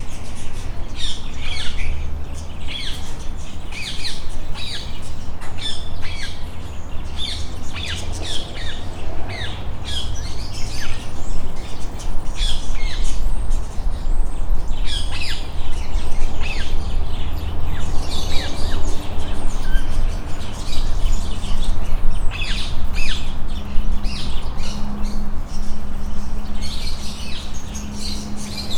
is there more than one bird?
yes